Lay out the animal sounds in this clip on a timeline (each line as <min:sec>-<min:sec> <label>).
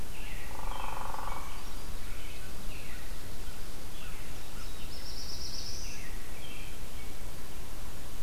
0:00.0-0:01.7 American Robin (Turdus migratorius)
0:00.3-0:01.7 Hairy Woodpecker (Dryobates villosus)
0:00.9-0:01.9 Brown Creeper (Certhia americana)
0:02.0-0:02.5 American Robin (Turdus migratorius)
0:02.6-0:03.1 Veery (Catharus fuscescens)
0:03.4-0:04.7 American Crow (Corvus brachyrhynchos)
0:03.8-0:04.3 Veery (Catharus fuscescens)
0:04.3-0:06.1 Black-throated Blue Warbler (Setophaga caerulescens)
0:05.7-0:06.8 American Robin (Turdus migratorius)